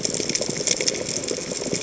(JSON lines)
{"label": "biophony", "recorder": "HydroMoth"}